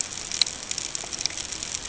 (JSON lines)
{"label": "ambient", "recorder": "HydroMoth"}